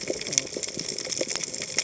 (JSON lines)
{"label": "biophony, cascading saw", "recorder": "HydroMoth"}